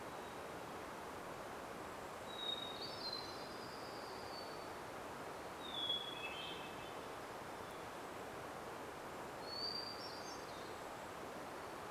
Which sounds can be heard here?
Hermit Thrush song, Golden-crowned Kinglet call, warbler song